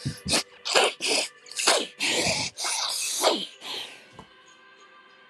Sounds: Sniff